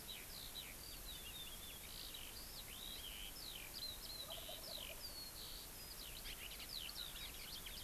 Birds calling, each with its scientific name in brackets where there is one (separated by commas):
Eurasian Skylark (Alauda arvensis), Wild Turkey (Meleagris gallopavo)